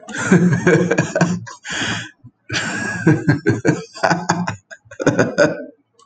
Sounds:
Laughter